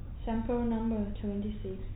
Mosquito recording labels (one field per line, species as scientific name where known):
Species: no mosquito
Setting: cup